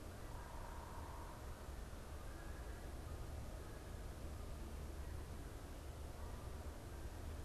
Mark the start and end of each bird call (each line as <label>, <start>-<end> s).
Canada Goose (Branta canadensis), 0.0-7.4 s
unidentified bird, 0.3-1.5 s